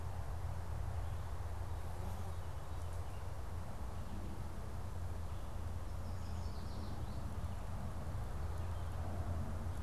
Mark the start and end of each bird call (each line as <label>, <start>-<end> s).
Yellow Warbler (Setophaga petechia), 5.8-7.5 s